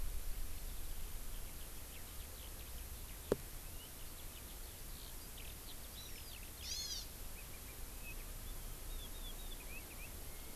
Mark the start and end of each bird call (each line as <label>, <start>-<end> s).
Eurasian Skylark (Alauda arvensis), 1.3-6.5 s
Hawaii Amakihi (Chlorodrepanis virens), 5.9-7.1 s
Chinese Hwamei (Garrulax canorus), 7.3-10.5 s